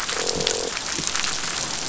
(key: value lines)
label: biophony, croak
recorder: SoundTrap 500